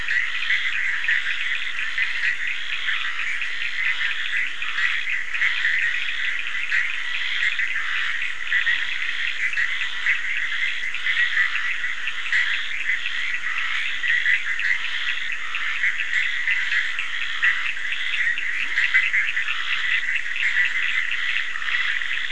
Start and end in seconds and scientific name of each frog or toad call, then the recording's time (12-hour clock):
0.0	22.3	Boana bischoffi
0.0	22.3	Scinax perereca
0.0	22.3	Sphaenorhynchus surdus
18.2	18.9	Leptodactylus latrans
2:45am